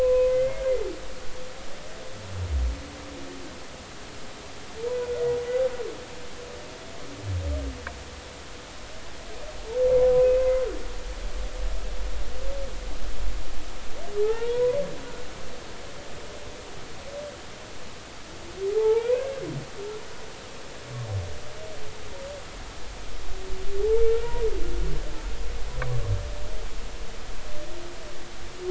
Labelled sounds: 0.0	0.6	humpback whale, 0.96 to 2.6 kHz
10.2	10.5	humpback whale, 2.5 to 2.6 kHz
14.2	14.8	humpback whale, 0.80 to 2.9 kHz
18.7	19.4	humpback whale, 0.80 to 1.7 kHz
24.1	24.4	humpback whale, 1.3 to 1.5 kHz

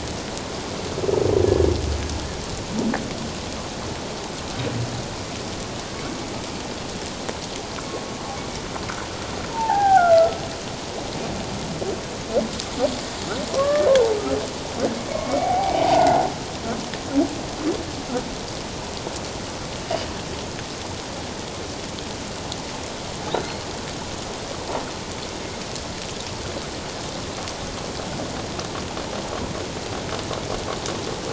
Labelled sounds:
1.4	1.7	humpback whale, 1.7 to 1.8 kHz
9.5	10.4	humpback whale, 0.78 to 1.8 kHz
13.5	13.9	humpback whale, 0.94 to 1.8 kHz
15.1	16.3	humpback whale, 0.78 to 2.3 kHz
19.8	20.1	humpback whale, 2.8 to 3.0 kHz

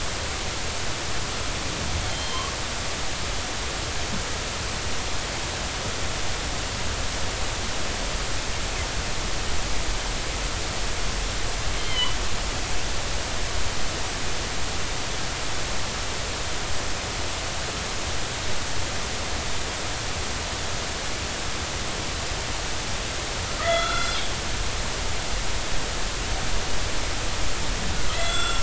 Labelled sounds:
2.1	2.6	killer whale, northern resident, G clan, 0.93 to 3.2 kHz
11.8	12.2	killer whale, northern resident, G clan, 2.9 to 3.2 kHz
23.6	24.3	killer whale, northern resident, G clan, 1.1 to 4.3 kHz
28.1	28.6	killer whale, northern resident, G clan, 1.3 to 7.7 kHz

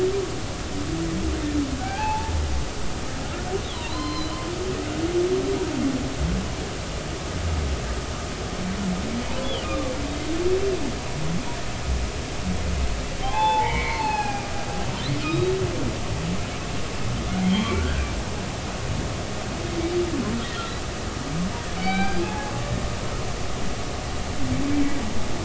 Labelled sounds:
1.8	2.3	humpback whale, 0.80 to 2.7 kHz
3.7	4.4	humpback whale, 0.90 to 4.3 kHz
9.4	9.9	humpback whale, 1.0 to 3.5 kHz
13.2	14.5	humpback whale, 0.80 to 4.4 kHz
15.2	15.5	humpback whale, 1.2 to 3.9 kHz
17.4	17.7	humpback whale, 2.9 to 3.3 kHz
18.7	19.1	humpback whale, 1.3 to 1.7 kHz
21.8	22.5	humpback whale, 0.80 to 4.0 kHz
24.7	25.0	humpback whale, 1.9 to 2.4 kHz

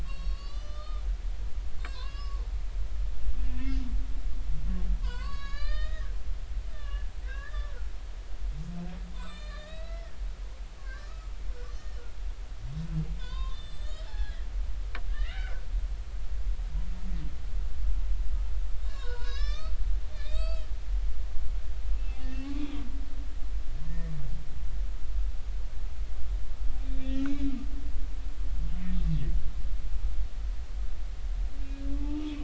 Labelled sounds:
0.0	2.4	humpback whale, 0.96 to 6.0 kHz
3.4	3.8	humpback whale, 1.7 to 2.8 kHz
5.0	6.2	humpback whale, 0.93 to 8.0 kHz
6.7	7.7	humpback whale, 1.1 to 3.6 kHz
9.1	10.1	humpback whale, 0.93 to 8.0 kHz
10.8	12.0	humpback whale, 1.0 to 5.6 kHz
13.2	14.4	humpback whale, 0.80 to 7.8 kHz
15.1	15.6	humpback whale, 1.3 to 3.1 kHz
18.8	20.8	humpback whale, 0.90 to 7.9 kHz
22.0	22.7	humpback whale, 1.1 to 2.7 kHz
23.2	24.1	humpback whale, 1.8 to 1.9 kHz
26.8	27.6	humpback whale, 1.8 to 4.1 kHz
31.9	32.2	humpback whale, 0.83 to 0.96 kHz

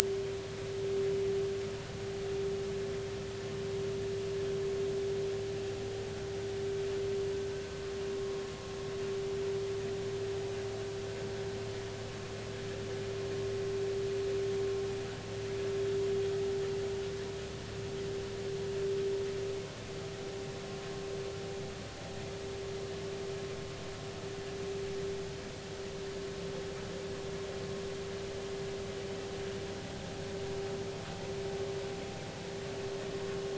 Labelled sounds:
8.2	8.4	vessel noise, 1.0 to 1.1 kHz

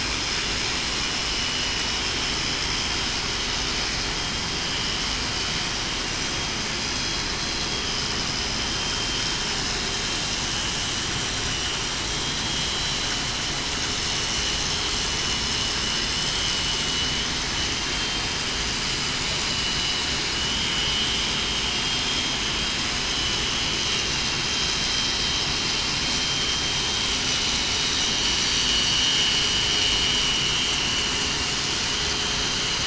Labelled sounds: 2.2	2.7	vessel noise, 2.98 to 3.05 kHz
6.7	7.2	vessel noise, 3.3 to 4.1 kHz
8.6	9.3	vessel noise, 3.1 to 3.2 kHz
12.0	12.9	vessel noise, 3.2 to 3.3 kHz

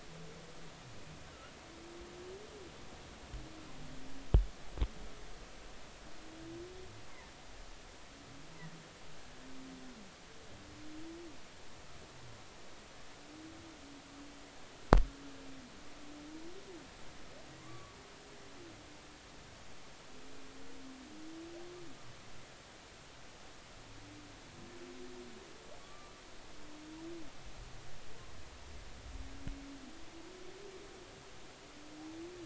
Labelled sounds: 17.6	17.9	humpback whale, 1.0 to 1.2 kHz
25.8	26.1	humpback whale, 1.1 to 1.3 kHz

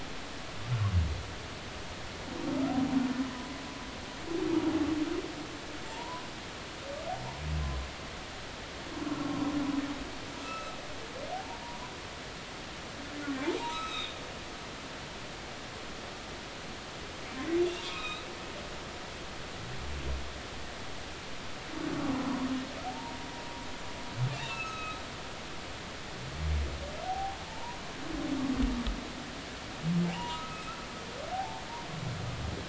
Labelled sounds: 5.9	6.3	humpback whale, 0.86 to 1.1 kHz
9.1	9.3	humpback whale, 1.3 to 1.4 kHz
10.4	11.9	humpback whale, 0.80 to 2.7 kHz
13.6	14.2	humpback whale, 1.2 to 5.3 kHz
17.6	18.3	humpback whale, 1.2 to 4.0 kHz
22.0	22.4	humpback whale, 0.90 to 1.2 kHz
22.8	23.2	humpback whale, 0.80 to 0.99 kHz
24.3	25.0	humpback whale, 1.2 to 6.6 kHz
27.0	27.8	humpback whale, 0.80 to 1.0 kHz
30.0	30.7	humpback whale, 0.80 to 3.0 kHz
31.3	31.6	humpback whale, 0.80 to 0.93 kHz

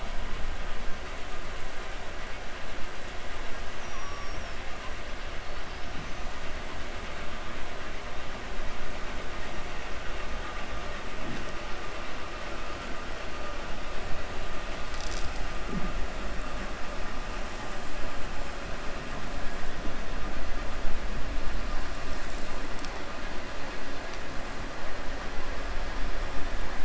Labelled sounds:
3.7	4.6	killer whale, 5.1 to 6.3 kHz

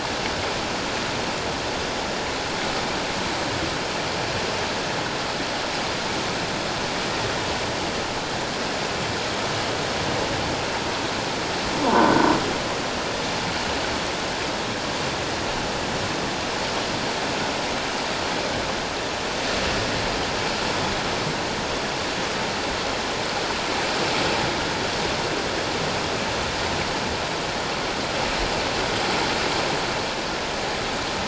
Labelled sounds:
11.8	12.1	croaking sound likely from a nearby submerged object, 0.84 to 1.1 kHz

